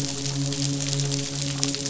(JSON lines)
{"label": "biophony, midshipman", "recorder": "SoundTrap 500"}